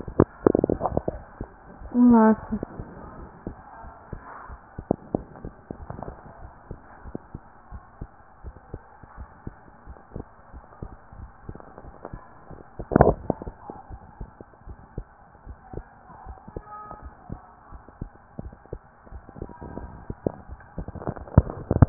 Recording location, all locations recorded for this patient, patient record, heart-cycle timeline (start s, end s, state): pulmonary valve (PV)
aortic valve (AV)+pulmonary valve (PV)+tricuspid valve (TV)
#Age: Adolescent
#Sex: Female
#Height: 161.0 cm
#Weight: 69.1 kg
#Pregnancy status: False
#Murmur: Absent
#Murmur locations: nan
#Most audible location: nan
#Systolic murmur timing: nan
#Systolic murmur shape: nan
#Systolic murmur grading: nan
#Systolic murmur pitch: nan
#Systolic murmur quality: nan
#Diastolic murmur timing: nan
#Diastolic murmur shape: nan
#Diastolic murmur grading: nan
#Diastolic murmur pitch: nan
#Diastolic murmur quality: nan
#Outcome: Abnormal
#Campaign: 2015 screening campaign
0.00	7.70	unannotated
7.70	7.82	S1
7.82	8.00	systole
8.00	8.12	S2
8.12	8.42	diastole
8.42	8.54	S1
8.54	8.71	systole
8.71	8.79	S2
8.79	9.14	diastole
9.14	9.28	S1
9.28	9.43	systole
9.43	9.56	S2
9.56	9.85	diastole
9.85	9.96	S1
9.96	10.11	systole
10.11	10.21	S2
10.21	10.49	diastole
10.49	10.62	S1
10.62	10.78	systole
10.78	10.90	S2
10.90	11.18	diastole
11.18	11.28	S1
11.28	11.44	systole
11.44	11.56	S2
11.56	11.80	diastole
11.80	11.94	S1
11.94	12.10	systole
12.10	12.20	S2
12.20	12.47	diastole
12.47	12.57	S1
12.57	12.76	systole
12.76	12.85	S2
12.85	13.87	unannotated
13.87	14.01	S1
14.01	14.18	systole
14.18	14.30	S2
14.30	14.65	diastole
14.65	14.77	S1
14.77	14.95	systole
14.95	15.06	S2
15.06	15.46	diastole
15.46	15.60	S1
15.60	15.76	systole
15.76	15.88	S2
15.88	16.24	diastole
16.24	16.35	S1
16.35	16.53	systole
16.53	16.62	S2
16.62	17.00	diastole
17.00	17.14	S1
17.14	17.28	systole
17.28	17.42	S2
17.42	17.69	diastole
17.69	17.79	S1
17.79	17.99	systole
17.99	18.09	S2
18.09	18.38	diastole
18.38	18.54	S1
18.54	18.71	systole
18.71	18.82	S2
18.82	19.10	diastole
19.10	19.21	S1
19.21	19.38	systole
19.38	19.47	S2
19.47	19.79	diastole
19.79	21.89	unannotated